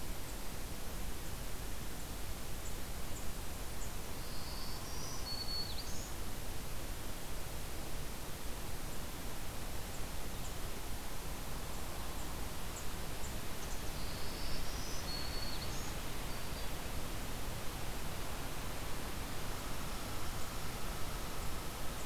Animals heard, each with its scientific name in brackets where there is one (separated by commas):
Hairy Woodpecker (Dryobates villosus), Black-throated Green Warbler (Setophaga virens), Red Squirrel (Tamiasciurus hudsonicus)